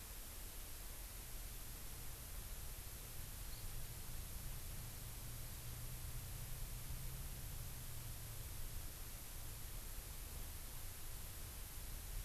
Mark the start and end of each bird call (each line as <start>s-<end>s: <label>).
3.5s-3.6s: Hawaii Amakihi (Chlorodrepanis virens)